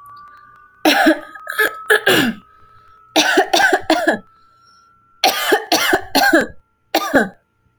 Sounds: Cough